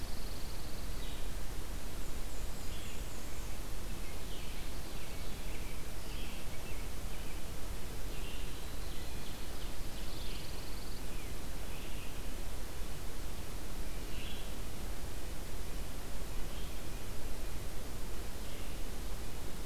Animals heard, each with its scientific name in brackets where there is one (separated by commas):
Black-and-white Warbler (Mniotilta varia), Pine Warbler (Setophaga pinus), American Robin (Turdus migratorius), Yellow-rumped Warbler (Setophaga coronata), Red-eyed Vireo (Vireo olivaceus), Ovenbird (Seiurus aurocapilla)